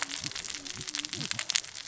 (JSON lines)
{"label": "biophony, cascading saw", "recorder": "SoundTrap 600 or HydroMoth"}